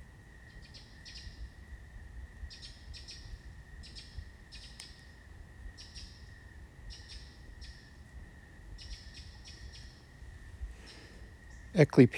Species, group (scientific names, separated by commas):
Oecanthus fultoni, Orthoptera